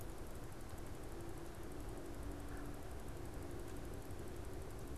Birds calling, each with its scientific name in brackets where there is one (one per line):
Red-bellied Woodpecker (Melanerpes carolinus)